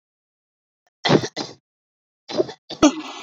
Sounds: Cough